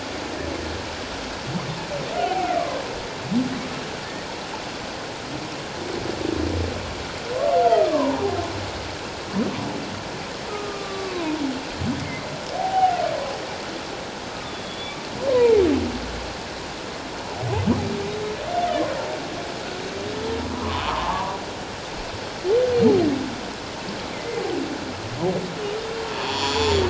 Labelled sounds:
2.2	2.6	humpback whale, 0.78 to 3.1 kHz
7.6	8.4	humpback whale, 0.78 to 1.4 kHz
10.5	11.3	humpback whale, 0.88 to 1.3 kHz
12.0	13.0	humpback whale, 0.78 to 2.3 kHz
14.4	15.6	humpback whale, 0.78 to 3.7 kHz
20.5	21.4	humpback whale, 0.81 to 1.3 kHz
24.1	24.4	humpback whale, 2.0 to 2.2 kHz
26.2	26.8	humpback whale, 0.81 to 7.2 kHz

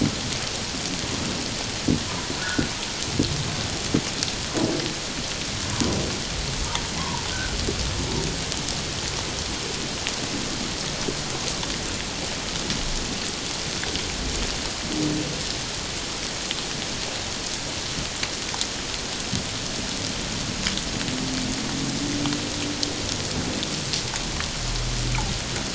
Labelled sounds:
2.4	2.7	humpback whale, 1.3 to 1.5 kHz
7.0	7.6	humpback whale, 0.84 to 1.6 kHz

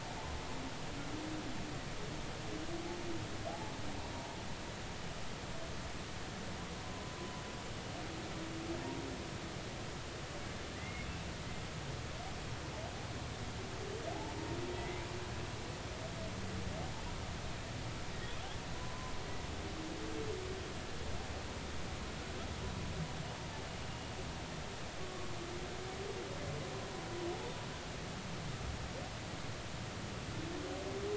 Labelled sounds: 3.5	3.7	humpback whale, 0.80 to 0.93 kHz
6.8	7.1	humpback whale, 0.96 to 1.1 kHz
10.8	11.1	humpback whale, 1.9 to 2.2 kHz
14.1	15.0	humpback whale, 0.80 to 2.1 kHz
18.7	19.1	humpback whale, 0.96 to 1.1 kHz

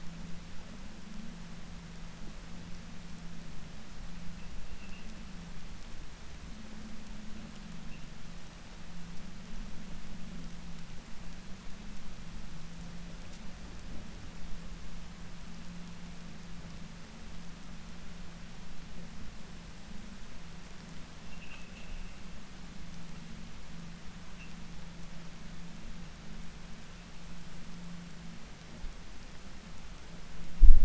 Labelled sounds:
21.2	22.0	vessel noise, 1.2 to 3.6 kHz

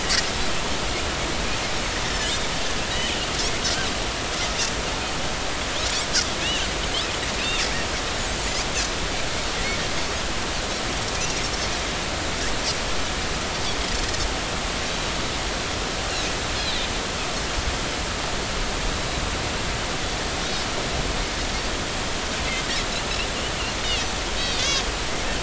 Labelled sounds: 2.1	2.3	Pacific white-sided dolphin, 5.1 to 5.6 kHz
6.4	6.7	Pacific white-sided dolphin, 2.4 to 3.0 kHz
16.6	16.9	Pacific white-sided dolphin, 3.5 to 4.3 kHz
24.4	24.8	Pacific white-sided dolphin, 2.4 to 5.9 kHz

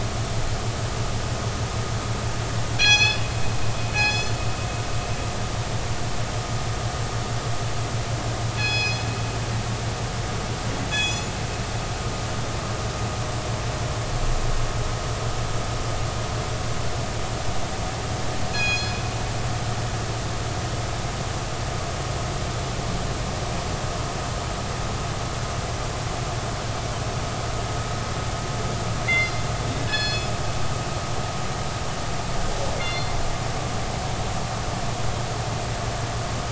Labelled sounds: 2.8	3.2	killer whale, northern resident, G clan, call N24ii, 1.6 to 6.9 kHz
3.9	4.4	killer whale, northern resident, G clan, call N24ii, 1.6 to 7.0 kHz
8.6	9.1	killer whale, northern resident, G clan, call N24ii, 1.6 to 6.8 kHz
10.9	11.3	killer whale, northern resident, G clan, call N24ii, 2.5 to 7.7 kHz
18.5	19.0	killer whale, northern resident, G clan, call N24ii, 1.6 to 6.8 kHz
29.1	29.4	killer whale, northern resident, G clan, call N24ii, 2.0 to 4.9 kHz
29.8	30.3	killer whale, northern resident, G clan, call N24ii, 1.6 to 5.2 kHz
32.8	33.1	killer whale, northern resident, G clan, call N24ii, 2.0 to 4.3 kHz

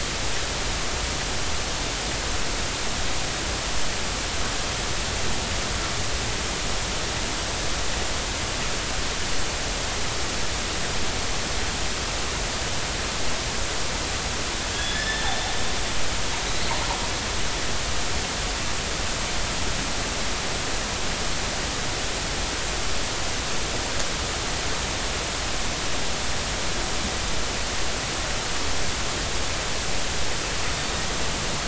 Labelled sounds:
14.7	15.3	killer whale, northern resident, 1.6 to 5.3 kHz

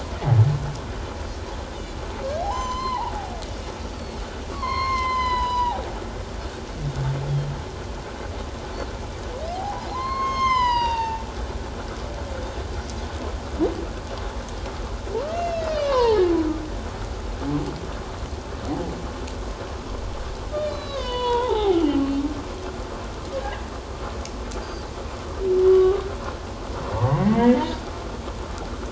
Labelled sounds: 1.7	2.0	humpback whale, 3.4 to 3.7 kHz
2.4	4.2	humpback whale, 0.78 to 7.3 kHz
4.5	5.9	humpback whale, 0.78 to 6.6 kHz
9.5	11.2	humpback whale, 0.78 to 7.3 kHz
15.2	16.3	humpback whale, 0.81 to 5.5 kHz
20.6	21.8	humpback whale, 0.78 to 5.2 kHz
23.4	23.6	humpback whale, 1.6 to 2.1 kHz
25.6	26.0	humpback whale, 1.1 to 3.1 kHz
26.9	27.6	humpback whale, 0.78 to 2.3 kHz

